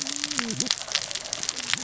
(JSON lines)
{"label": "biophony, cascading saw", "recorder": "SoundTrap 600 or HydroMoth"}